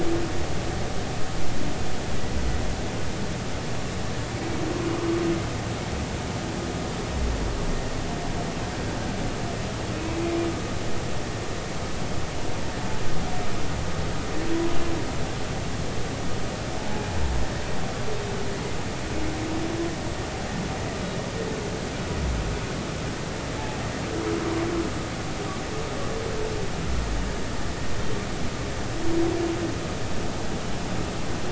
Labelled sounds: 4.4	4.6	humpback whale, 2.2 to 2.3 kHz
9.9	10.2	humpback whale, 2.4 to 2.7 kHz
16.8	17.1	humpback whale, 0.80 to 0.93 kHz

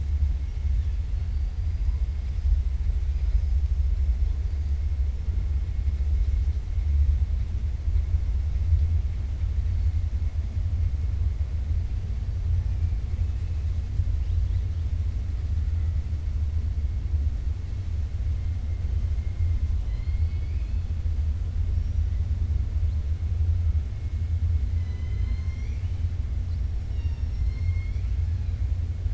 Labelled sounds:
3.1	3.5	killer whale, 4.1 to 5.2 kHz
19.8	20.8	killer whale, 2.0 to 4.9 kHz
24.7	26.0	killer whale, 1.0 to 6.4 kHz
26.8	28.1	killer whale, 0.94 to 6.0 kHz

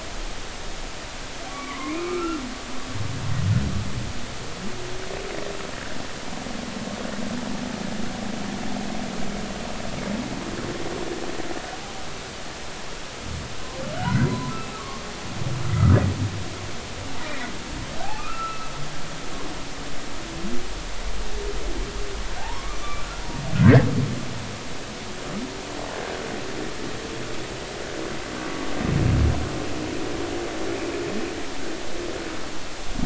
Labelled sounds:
1.5	2.4	humpback whale, 0.96 to 2.5 kHz
13.9	15.0	humpback whale, 0.96 to 2.1 kHz
18.2	18.7	humpback whale, 1.2 to 1.4 kHz
22.4	23.9	humpback whale, 0.80 to 2.1 kHz

